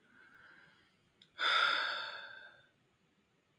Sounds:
Sigh